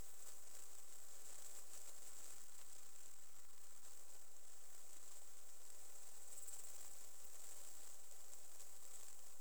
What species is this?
Pholidoptera griseoaptera